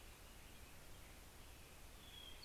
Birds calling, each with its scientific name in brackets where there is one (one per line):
American Robin (Turdus migratorius)
Hermit Thrush (Catharus guttatus)